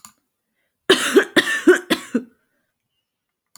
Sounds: Cough